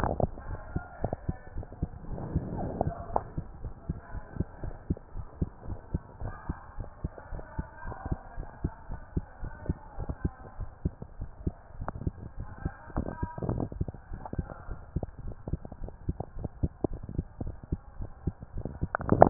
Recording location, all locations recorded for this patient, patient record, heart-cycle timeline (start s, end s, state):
mitral valve (MV)
aortic valve (AV)+pulmonary valve (PV)+tricuspid valve (TV)+mitral valve (MV)
#Age: Child
#Sex: Female
#Height: 161.0 cm
#Weight: 43.8 kg
#Pregnancy status: False
#Murmur: Absent
#Murmur locations: nan
#Most audible location: nan
#Systolic murmur timing: nan
#Systolic murmur shape: nan
#Systolic murmur grading: nan
#Systolic murmur pitch: nan
#Systolic murmur quality: nan
#Diastolic murmur timing: nan
#Diastolic murmur shape: nan
#Diastolic murmur grading: nan
#Diastolic murmur pitch: nan
#Diastolic murmur quality: nan
#Outcome: Normal
#Campaign: 2015 screening campaign
0.00	0.29	unannotated
0.29	0.48	diastole
0.48	0.60	S1
0.60	0.70	systole
0.70	0.86	S2
0.86	1.02	diastole
1.02	1.12	S1
1.12	1.24	systole
1.24	1.36	S2
1.36	1.54	diastole
1.54	1.66	S1
1.66	1.80	systole
1.80	1.90	S2
1.90	2.08	diastole
2.08	2.24	S1
2.24	2.32	systole
2.32	2.44	S2
2.44	2.58	diastole
2.58	2.72	S1
2.72	2.82	systole
2.82	2.94	S2
2.94	3.12	diastole
3.12	3.24	S1
3.24	3.34	systole
3.34	3.46	S2
3.46	3.62	diastole
3.62	3.74	S1
3.74	3.86	systole
3.86	3.98	S2
3.98	4.14	diastole
4.14	4.24	S1
4.24	4.36	systole
4.36	4.48	S2
4.48	4.62	diastole
4.62	4.74	S1
4.74	4.86	systole
4.86	4.98	S2
4.98	5.16	diastole
5.16	5.26	S1
5.26	5.38	systole
5.38	5.50	S2
5.50	5.68	diastole
5.68	5.80	S1
5.80	5.90	systole
5.90	6.02	S2
6.02	6.20	diastole
6.20	6.34	S1
6.34	6.46	systole
6.46	6.60	S2
6.60	6.78	diastole
6.78	6.88	S1
6.88	7.02	systole
7.02	7.14	S2
7.14	7.32	diastole
7.32	7.44	S1
7.44	7.56	systole
7.56	7.66	S2
7.66	7.86	diastole
7.86	7.96	S1
7.96	8.06	systole
8.06	8.20	S2
8.20	8.38	diastole
8.38	8.48	S1
8.48	8.60	systole
8.60	8.74	S2
8.74	8.90	diastole
8.90	9.00	S1
9.00	9.12	systole
9.12	9.26	S2
9.26	9.42	diastole
9.42	9.54	S1
9.54	9.68	systole
9.68	9.78	S2
9.78	9.96	diastole
9.96	10.08	S1
10.08	10.20	systole
10.20	10.34	S2
10.34	10.56	diastole
10.56	10.70	S1
10.70	10.84	systole
10.84	10.98	S2
10.98	11.18	diastole
11.18	11.30	S1
11.30	11.42	systole
11.42	11.56	S2
11.56	11.78	diastole
11.78	11.90	S1
11.90	12.02	systole
12.02	12.14	S2
12.14	12.36	diastole
12.36	12.50	S1
12.50	12.64	systole
12.64	12.76	S2
12.76	12.94	diastole
12.94	13.06	S1
13.06	13.18	systole
13.18	13.30	S2
13.30	13.44	diastole
13.44	13.62	S1
13.62	13.76	systole
13.76	13.88	S2
13.88	14.10	diastole
14.10	14.22	S1
14.22	14.32	systole
14.32	14.46	S2
14.46	14.66	diastole
14.66	14.80	S1
14.80	14.92	systole
14.92	15.04	S2
15.04	15.24	diastole
15.24	15.36	S1
15.36	15.48	systole
15.48	15.64	S2
15.64	15.82	diastole
15.82	15.92	S1
15.92	16.04	systole
16.04	16.20	S2
16.20	16.38	diastole
16.38	16.52	S1
16.52	16.64	systole
16.64	16.76	S2
16.76	16.92	diastole
16.92	17.04	S1
17.04	17.14	systole
17.14	17.26	S2
17.26	17.40	diastole
17.40	17.56	S1
17.56	17.68	systole
17.68	17.82	S2
17.82	17.98	diastole
17.98	18.10	S1
18.10	18.24	systole
18.24	18.38	S2
18.38	18.54	diastole
18.54	19.30	unannotated